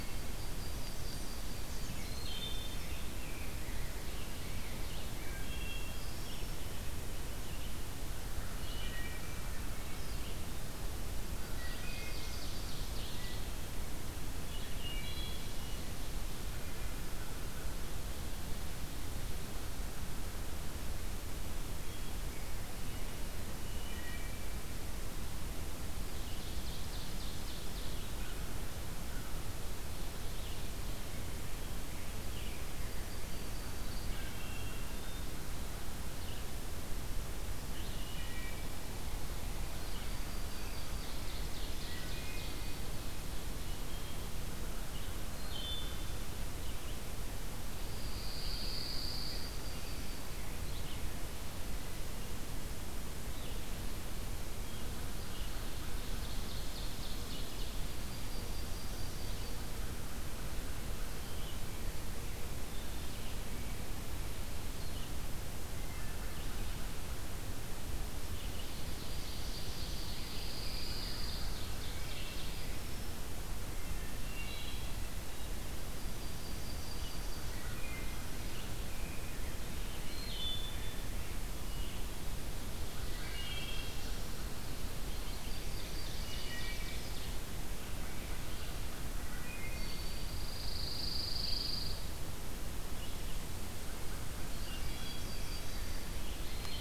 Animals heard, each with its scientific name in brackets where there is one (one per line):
American Crow (Corvus brachyrhynchos)
Yellow-rumped Warbler (Setophaga coronata)
Wood Thrush (Hylocichla mustelina)
Red-eyed Vireo (Vireo olivaceus)
Pine Warbler (Setophaga pinus)
Hermit Thrush (Catharus guttatus)
Ovenbird (Seiurus aurocapilla)
Rose-breasted Grosbeak (Pheucticus ludovicianus)